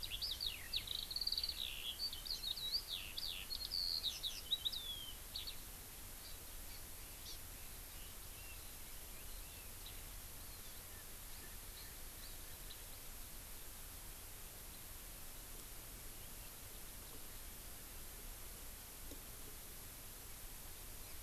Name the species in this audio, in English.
Eurasian Skylark, Hawaii Amakihi, Red-billed Leiothrix